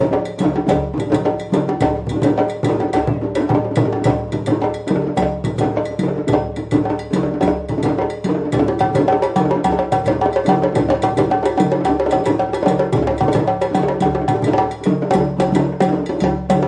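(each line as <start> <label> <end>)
0.0 Drums beat rhythmically nearby. 16.7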